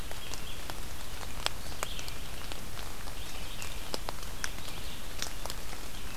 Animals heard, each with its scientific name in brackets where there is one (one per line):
Red-eyed Vireo (Vireo olivaceus)